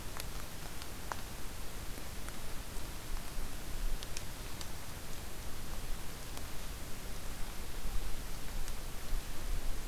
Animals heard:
forest ambience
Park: Acadia National Park